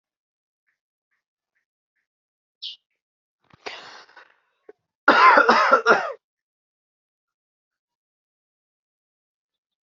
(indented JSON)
{
  "expert_labels": [
    {
      "quality": "ok",
      "cough_type": "dry",
      "dyspnea": false,
      "wheezing": false,
      "stridor": false,
      "choking": false,
      "congestion": false,
      "nothing": true,
      "diagnosis": "COVID-19",
      "severity": "mild"
    }
  ]
}